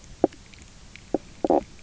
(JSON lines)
{"label": "biophony, knock croak", "recorder": "SoundTrap 300"}